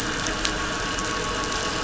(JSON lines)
{"label": "anthrophony, boat engine", "recorder": "SoundTrap 500"}